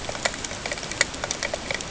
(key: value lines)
label: ambient
recorder: HydroMoth